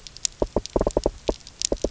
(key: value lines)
label: biophony, knock
recorder: SoundTrap 300